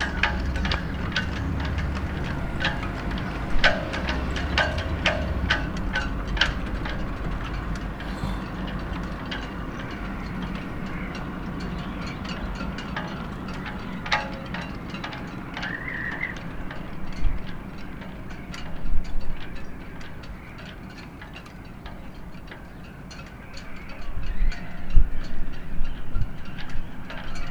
Is the wind blowing?
yes